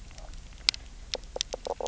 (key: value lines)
label: biophony, knock croak
recorder: SoundTrap 300